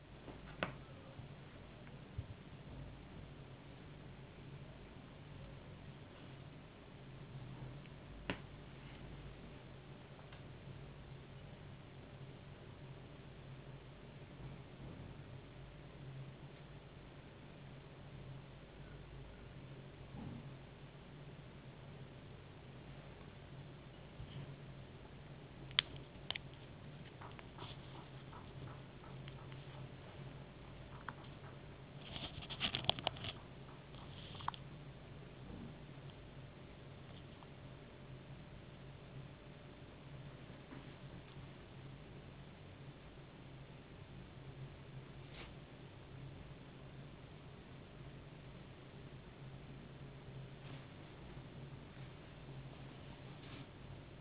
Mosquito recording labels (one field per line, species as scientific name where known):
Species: no mosquito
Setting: insect culture